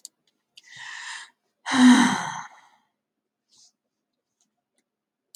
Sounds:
Sigh